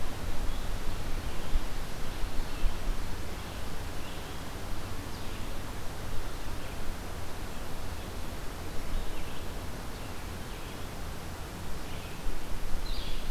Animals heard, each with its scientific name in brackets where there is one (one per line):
Red-eyed Vireo (Vireo olivaceus)
Blue-headed Vireo (Vireo solitarius)